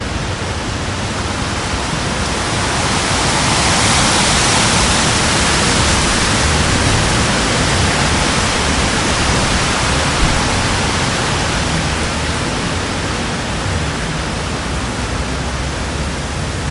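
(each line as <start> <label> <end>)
0.0 Wind produces a loud, continuous whooshing of tree leaves with distant traffic noise in the background. 16.7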